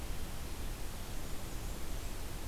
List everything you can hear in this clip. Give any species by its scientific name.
Setophaga fusca